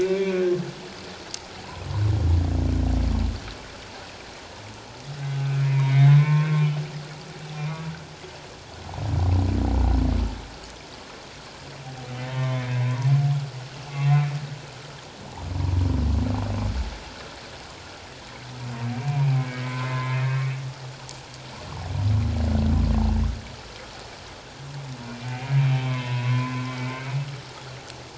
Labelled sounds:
0.0	0.4	humpback whale, 2.2 to 2.4 kHz
5.2	6.5	humpback whale, 1.0 to 3.8 kHz
7.6	7.8	humpback whale, 0.91 to 2.5 kHz
12.2	13.1	humpback whale, 0.91 to 1.8 kHz
19.0	19.2	humpback whale, 2.3 to 2.5 kHz
19.6	20.5	humpback whale, 0.97 to 2.6 kHz
25.1	25.5	humpback whale, 2.2 to 2.5 kHz
25.8	27.1	humpback whale, 0.94 to 2.7 kHz

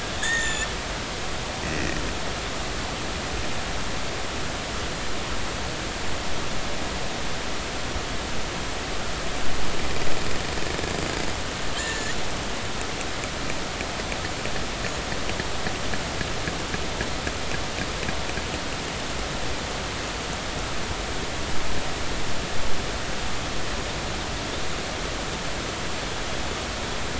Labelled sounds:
0.2	0.7	killer whale, northern resident, 1.6 to 7.3 kHz
1.7	2.0	killer whale, northern resident, 1.8 to 2.0 kHz
11.7	12.2	killer whale, northern resident, 1.6 to 7.1 kHz

